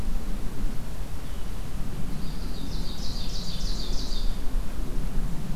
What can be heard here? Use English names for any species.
Ovenbird, Golden-crowned Kinglet